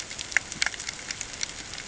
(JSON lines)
{"label": "ambient", "recorder": "HydroMoth"}